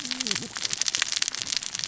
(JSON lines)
{"label": "biophony, cascading saw", "recorder": "SoundTrap 600 or HydroMoth"}